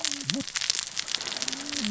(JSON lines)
{"label": "biophony, cascading saw", "recorder": "SoundTrap 600 or HydroMoth"}